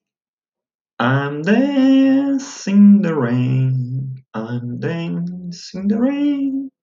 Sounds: Sigh